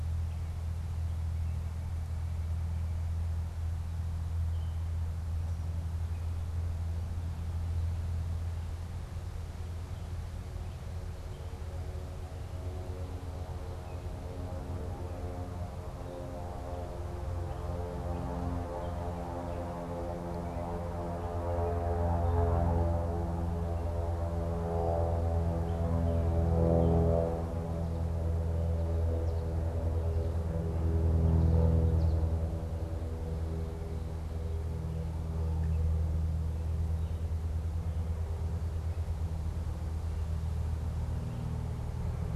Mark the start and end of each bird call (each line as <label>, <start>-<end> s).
unidentified bird, 1.0-3.1 s
Gray Catbird (Dumetella carolinensis), 4.1-6.8 s
Gray Catbird (Dumetella carolinensis), 9.7-27.2 s
American Goldfinch (Spinus tristis), 29.0-32.6 s